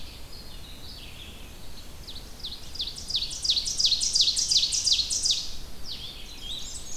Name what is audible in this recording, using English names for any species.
Blue-headed Vireo, Red-eyed Vireo, Ovenbird, Black-and-white Warbler